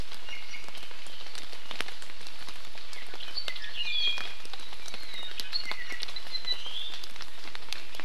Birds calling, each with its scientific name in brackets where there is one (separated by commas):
Iiwi (Drepanis coccinea), Apapane (Himatione sanguinea)